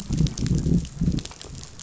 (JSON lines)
{"label": "biophony, growl", "recorder": "SoundTrap 500"}